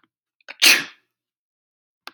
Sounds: Sneeze